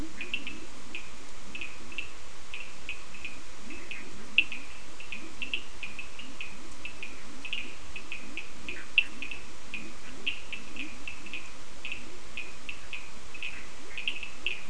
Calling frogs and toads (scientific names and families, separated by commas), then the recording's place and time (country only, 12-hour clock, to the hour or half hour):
Leptodactylus latrans (Leptodactylidae), Sphaenorhynchus surdus (Hylidae)
Brazil, 4am